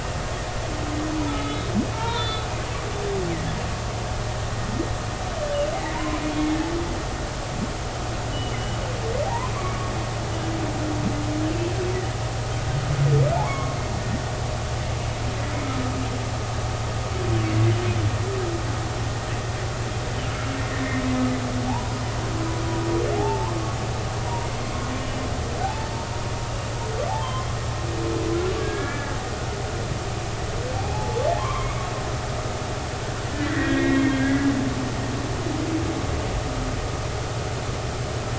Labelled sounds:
1.4	2.5	humpback whale, 0.86 to 4.1 kHz
5.9	6.6	humpback whale, 0.90 to 3.4 kHz
8.3	9.5	humpback whale, 0.80 to 3.0 kHz
13.4	13.8	humpback whale, 0.99 to 3.4 kHz
20.7	22.0	humpback whale, 0.80 to 2.0 kHz
23.1	23.6	humpback whale, 0.80 to 1.1 kHz
24.2	24.5	humpback whale, 0.90 to 0.99 kHz
25.6	25.9	humpback whale, 0.80 to 0.93 kHz
27.1	27.5	humpback whale, 0.80 to 1.1 kHz
28.6	29.2	humpback whale, 1.6 to 2.4 kHz
31.4	32.3	humpback whale, 0.80 to 3.3 kHz
33.4	34.3	humpback whale, 1.6 to 2.2 kHz

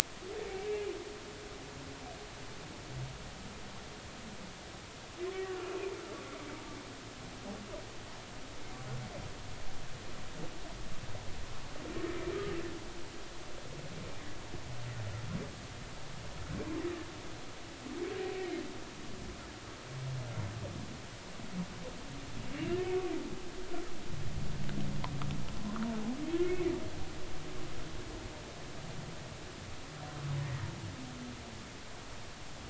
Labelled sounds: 0.6	0.8	humpback whale, 2.2 to 2.4 kHz
5.3	5.7	humpback whale, 1.3 to 2.0 kHz
18.3	18.6	humpback whale, 2.1 to 2.5 kHz
22.5	22.8	humpback whale, 2.7 to 2.9 kHz
26.4	26.7	humpback whale, 2.1 to 2.6 kHz

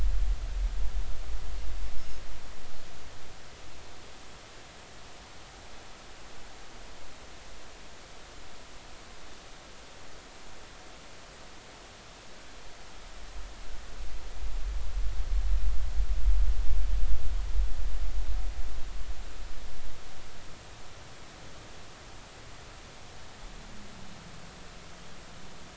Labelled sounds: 2.0	2.2	Pacific white-sided dolphin, 5.1 to 5.4 kHz

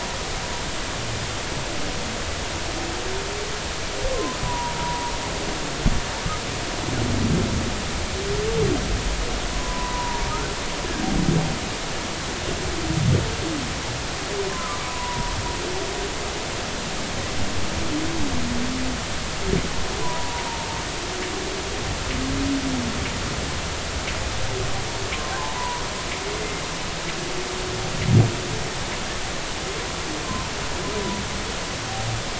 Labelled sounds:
4.1	5.1	humpback whale, 0.90 to 1.2 kHz
9.5	10.3	humpback whale, 0.86 to 1.1 kHz
14.5	15.3	humpback whale, 0.93 to 1.1 kHz
20.0	20.5	humpback whale, 0.90 to 1.1 kHz
25.1	25.8	humpback whale, 0.80 to 1.2 kHz
30.2	30.5	humpback whale, 0.86 to 1.1 kHz

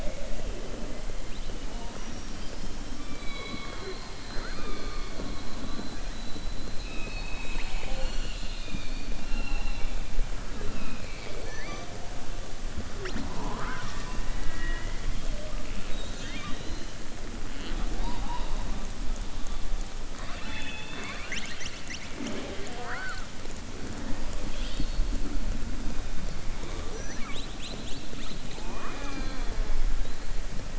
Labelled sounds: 2.9	4.1	killer whale, southern resident, 0.31 to 4.7 kHz

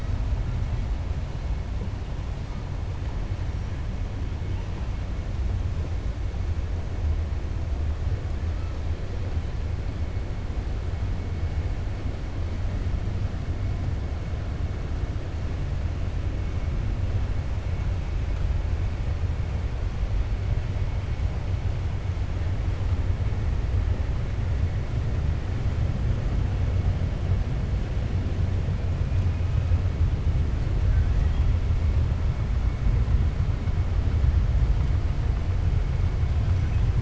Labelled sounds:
30.8	31.5	killer whale, 1.2 to 3.3 kHz

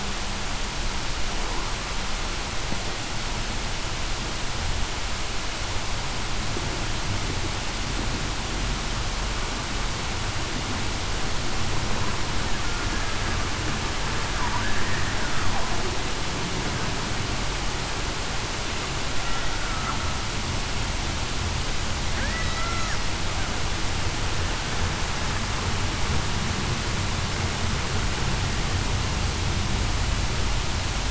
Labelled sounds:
19.5	19.9	killer whale, Bigg's (transient), 1.3 to 1.5 kHz
22.3	22.8	killer whale, Bigg's (transient), 1.9 to 2.1 kHz

